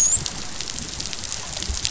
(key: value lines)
label: biophony, dolphin
recorder: SoundTrap 500